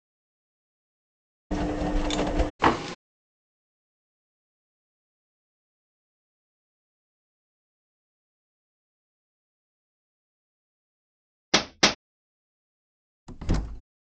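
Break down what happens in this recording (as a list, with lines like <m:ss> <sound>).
0:02 a washing machine can be heard
0:03 wooden furniture moves
0:12 you can hear a hammer
0:13 a wooden cupboard opens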